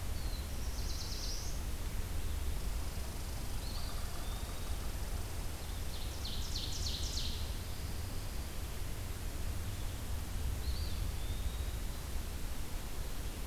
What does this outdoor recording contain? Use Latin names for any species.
Setophaga caerulescens, Tamiasciurus hudsonicus, Contopus virens, Seiurus aurocapilla